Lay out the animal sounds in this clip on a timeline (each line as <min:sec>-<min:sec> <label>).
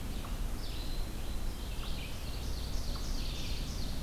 0:00.0-0:04.0 Red-eyed Vireo (Vireo olivaceus)
0:00.0-0:04.0 unknown mammal
0:01.7-0:04.0 Ovenbird (Seiurus aurocapilla)